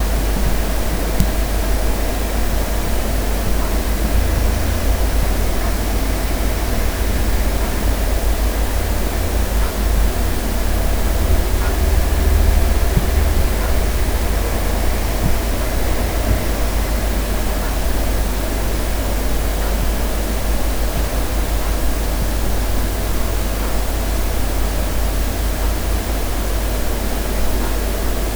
If someone interacted with this substance, how would they end up?
wet